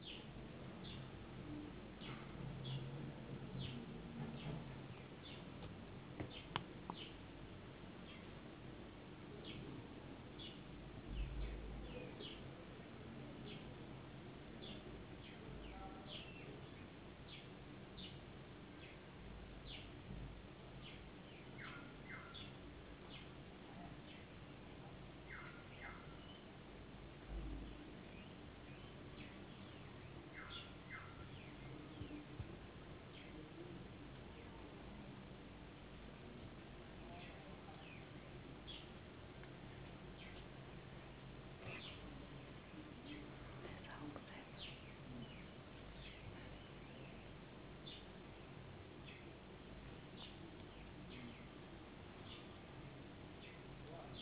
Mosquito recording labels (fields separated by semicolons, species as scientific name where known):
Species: no mosquito; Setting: insect culture